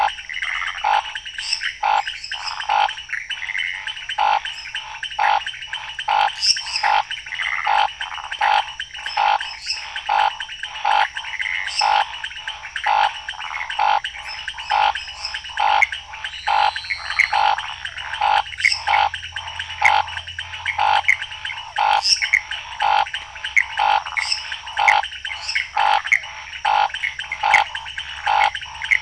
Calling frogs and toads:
Scinax fuscovarius, pointedbelly frog, Pithecopus azureus, waxy monkey tree frog, lesser tree frog, Elachistocleis matogrosso
11pm

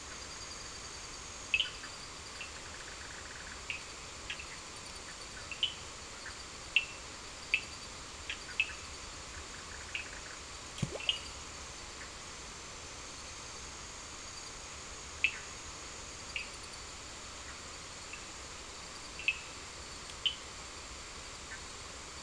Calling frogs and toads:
Cochran's lime tree frog, Bischoff's tree frog
~9pm

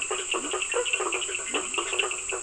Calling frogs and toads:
blacksmith tree frog, Leptodactylus latrans, Cochran's lime tree frog
~10pm

